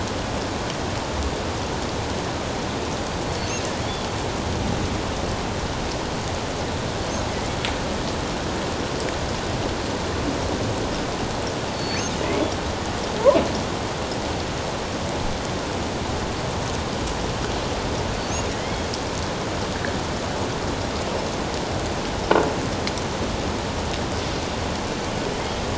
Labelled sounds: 3.3	3.5	killer whale, offshore, 4.3 to 4.5 kHz
11.7	12.4	killer whale, offshore, 1.8 to 4.5 kHz
18.6	18.9	killer whale, offshore, 2.9 to 3.4 kHz

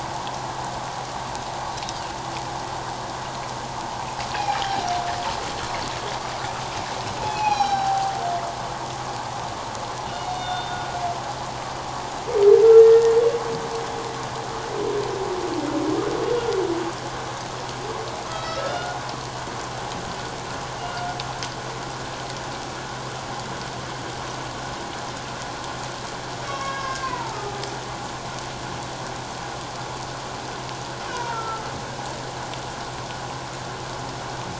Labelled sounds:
4.3	4.6	humpback whale, 2.3 to 2.7 kHz
7.2	8.1	humpback whale, 0.78 to 6.0 kHz
10.0	10.8	humpback whale, 2.8 to 4.5 kHz
12.8	13.0	humpback whale, 1.8 to 1.9 kHz
18.3	19.0	humpback whale, 1.2 to 4.6 kHz
20.8	21.2	humpback whale, 1.4 to 2.9 kHz
26.4	27.6	humpback whale, 0.84 to 5.6 kHz
31.1	31.7	humpback whale, 0.88 to 1.5 kHz

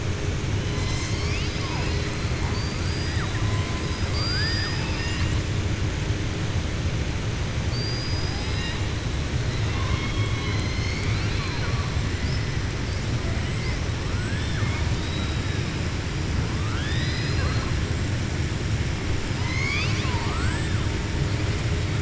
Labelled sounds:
3.8	5.4	killer whale, southern resident, 0.92 to 7.3 kHz
7.6	8.8	killer whale, southern resident, 1.8 to 5.6 kHz
14.9	15.5	killer whale, southern resident, 3.1 to 4.9 kHz
16.6	17.7	killer whale, southern resident, 0.55 to 5.5 kHz
19.3	20.7	killer whale, southern resident, 0.90 to 6.7 kHz

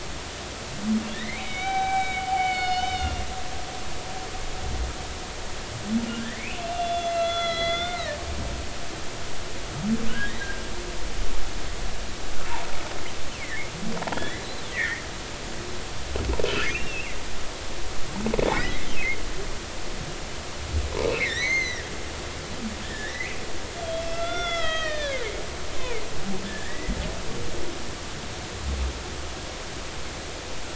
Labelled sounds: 1.1	3.2	humpback whale, 0.80 to 6.2 kHz
6.4	8.2	humpback whale, 1.3 to 4.2 kHz
10.1	10.3	humpback whale, 1.4 to 1.7 kHz
14.2	15.0	humpback whale, 1.3 to 2.4 kHz
16.7	17.2	humpback whale, 2.0 to 2.8 kHz
18.5	18.9	humpback whale, 1.8 to 2.6 kHz
21.2	21.9	humpback whale, 1.5 to 6.4 kHz
22.8	23.4	humpback whale, 1.6 to 2.7 kHz
23.8	25.2	humpback whale, 1.2 to 5.8 kHz
25.8	26.0	humpback whale, 2.0 to 2.7 kHz
26.4	26.9	humpback whale, 1.5 to 2.1 kHz

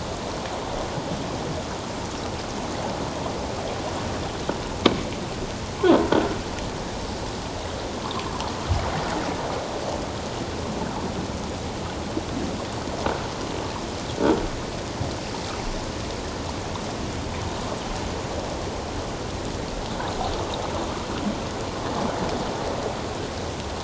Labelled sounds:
6.1	6.3	croaking sound likely from a nearby submerged object, 1.3 to 1.5 kHz

